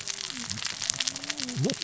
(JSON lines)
{"label": "biophony, cascading saw", "recorder": "SoundTrap 600 or HydroMoth"}